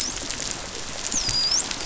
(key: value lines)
label: biophony, dolphin
recorder: SoundTrap 500